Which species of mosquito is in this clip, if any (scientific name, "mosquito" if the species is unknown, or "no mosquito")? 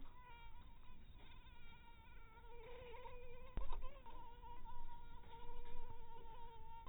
mosquito